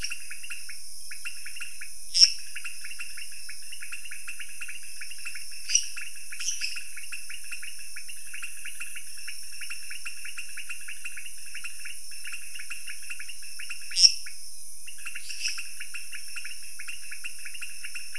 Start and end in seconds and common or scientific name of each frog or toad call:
0.0	18.1	pointedbelly frog
2.1	2.5	lesser tree frog
5.6	6.6	lesser tree frog
13.8	14.3	lesser tree frog
15.2	15.8	lesser tree frog